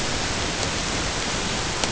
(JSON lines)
{"label": "ambient", "recorder": "HydroMoth"}